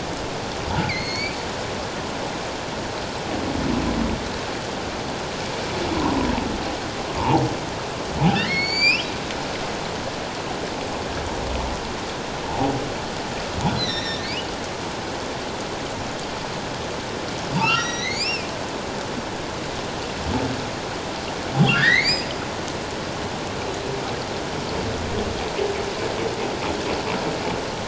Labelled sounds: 6.0	6.3	humpback whale, 0.88 to 1.1 kHz
8.4	9.1	humpback whale, 1.7 to 7.5 kHz
12.4	12.7	humpback whale, 0.78 to 0.97 kHz
13.8	14.5	humpback whale, 1.7 to 6.1 kHz
17.6	18.5	humpback whale, 1.1 to 7.5 kHz
21.6	22.3	humpback whale, 1.3 to 5.1 kHz

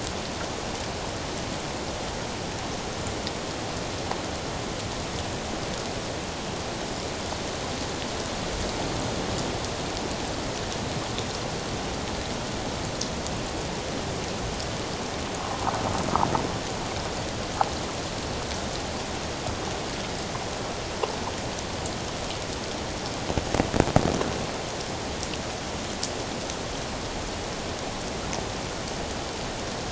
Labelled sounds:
15.5	15.8	water noise, 0.78 to 1.1 kHz

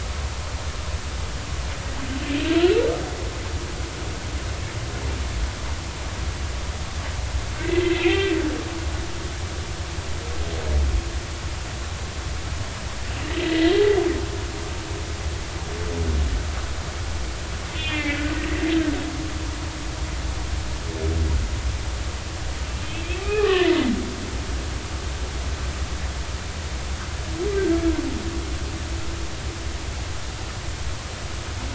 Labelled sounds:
7.6	8.3	humpback whale, 1.9 to 3.3 kHz
13.2	13.8	humpback whale, 1.8 to 2.0 kHz
17.7	18.3	humpback whale, 1.7 to 3.6 kHz
23.2	23.9	humpback whale, 0.80 to 2.6 kHz

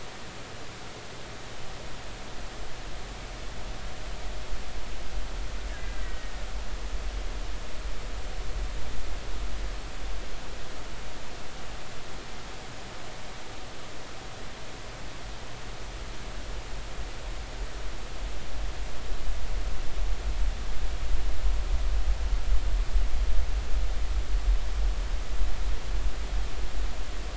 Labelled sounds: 5.8	6.3	killer whale, Bigg's (transient), 1.8 to 2.0 kHz

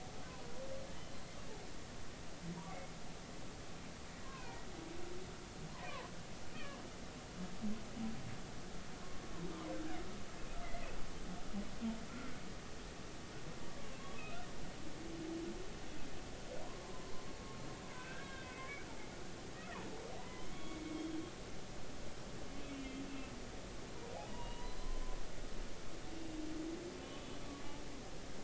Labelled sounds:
4.2	4.6	humpback whale, 0.90 to 2.7 kHz
6.5	6.8	humpback whale, 0.99 to 1.9 kHz
10.6	10.9	humpback whale, 1.9 to 2.1 kHz
16.9	17.1	humpback whale, 0.96 to 1.1 kHz
17.9	18.6	humpback whale, 1.5 to 3.3 kHz
20.2	21.2	humpback whale, 0.90 to 3.5 kHz
22.7	23.0	humpback whale, 2.6 to 2.8 kHz
24.2	25.0	humpback whale, 0.80 to 4.2 kHz

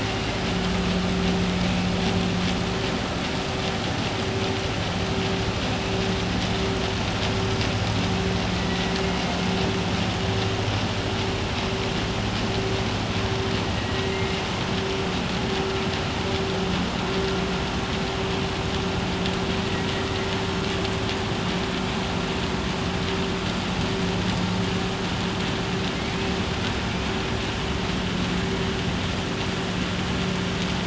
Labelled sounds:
14.0	14.4	killer whale, southern resident, 1.9 to 2.9 kHz

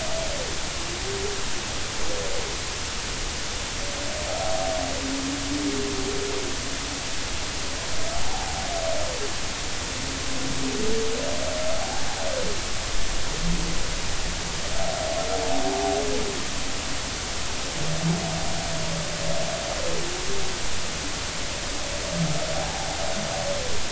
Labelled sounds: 8.2	8.5	humpback whale, 0.80 to 0.99 kHz
11.8	12.1	humpback whale, 0.80 to 0.93 kHz
22.5	22.9	humpback whale, 0.80 to 0.96 kHz

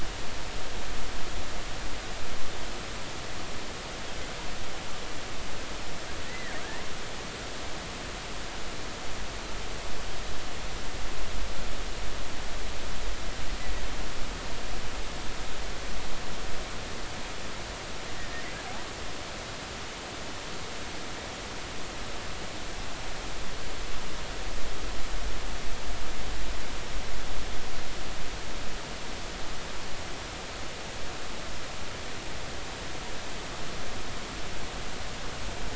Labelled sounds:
6.3	6.6	killer whale, offshore, 1.6 to 2.1 kHz
18.2	18.4	killer whale, offshore, 1.8 to 2.0 kHz

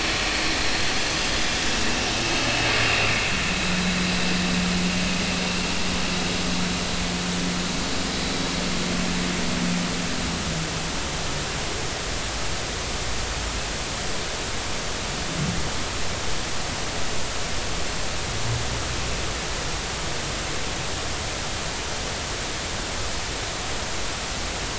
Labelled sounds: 2.9	3.3	vessel noise, 2.1 to 2.8 kHz

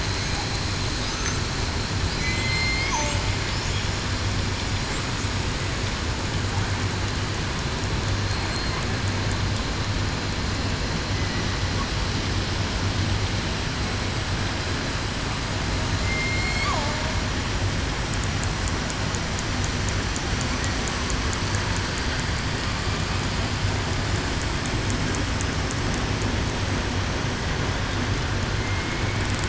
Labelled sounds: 2.1	2.9	killer whale, southern resident, 4.0 to 4.3 kHz
16.0	16.7	killer whale, southern resident, 2.0 to 4.4 kHz
28.6	29.2	killer whale, southern resident, 2.1 to 2.3 kHz

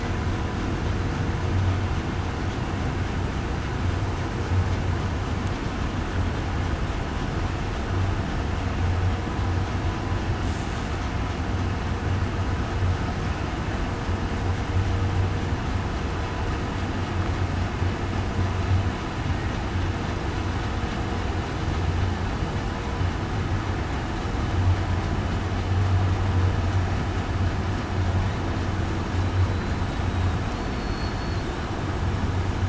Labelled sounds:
30.0	30.4	killer whale, southern resident, 3.8 to 3.9 kHz
30.8	31.4	killer whale, southern resident, 4.3 to 4.4 kHz

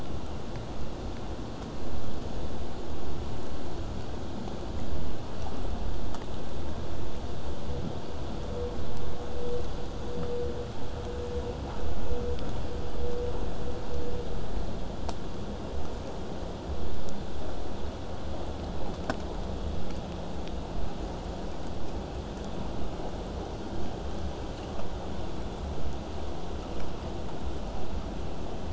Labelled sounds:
23.7	28.7	vessel noise, 0 to 8.0 kHz

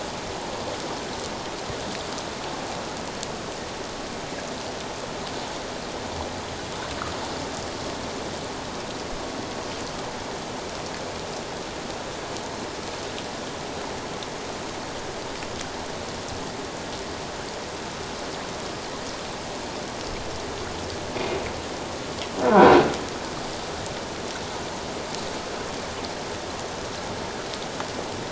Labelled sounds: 22.4	22.7	croaking sound likely from a nearby submerged object, 1.2 to 1.6 kHz

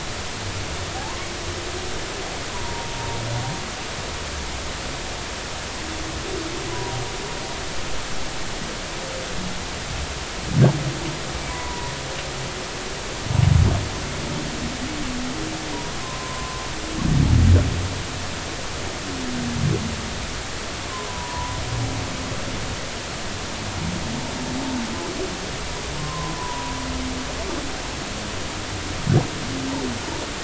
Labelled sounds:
1.0	1.3	humpback whale, 0.80 to 1.2 kHz
2.5	2.9	humpback whale, 0.90 to 1.1 kHz
6.7	7.0	humpback whale, 0.93 to 1.0 kHz
11.5	11.9	humpback whale, 0.93 to 1.1 kHz
16.0	16.6	humpback whale, 0.93 to 1.1 kHz
21.1	21.6	humpback whale, 0.86 to 1.0 kHz
26.0	26.7	humpback whale, 0.86 to 1.1 kHz

